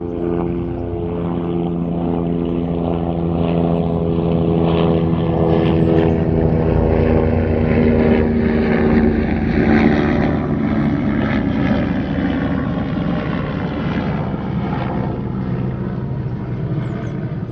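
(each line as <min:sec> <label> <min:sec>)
0:00.0 A large military helicopter flies overhead from left to right, producing a heavy, rhythmic rotor thrum. 0:17.5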